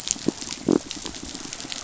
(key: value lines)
label: biophony
recorder: SoundTrap 500